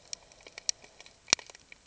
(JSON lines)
{"label": "ambient", "recorder": "HydroMoth"}